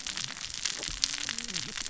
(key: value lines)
label: biophony, cascading saw
recorder: SoundTrap 600 or HydroMoth